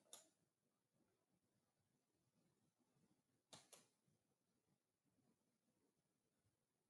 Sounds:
Sigh